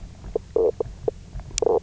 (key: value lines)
label: biophony, knock croak
recorder: SoundTrap 300